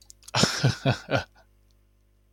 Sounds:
Laughter